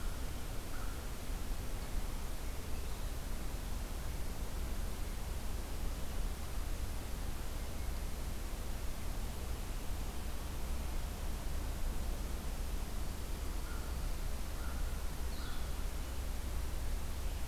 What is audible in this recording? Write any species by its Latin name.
Corvus brachyrhynchos